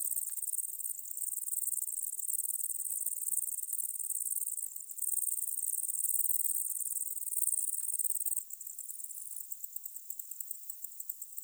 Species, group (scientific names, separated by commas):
Tettigonia viridissima, Orthoptera